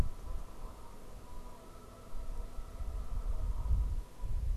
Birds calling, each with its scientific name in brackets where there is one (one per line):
Canada Goose (Branta canadensis)